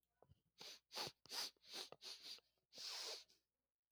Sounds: Sniff